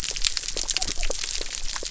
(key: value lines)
label: biophony
recorder: SoundTrap 300